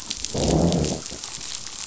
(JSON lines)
{"label": "biophony, growl", "recorder": "SoundTrap 500"}